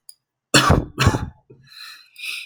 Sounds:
Cough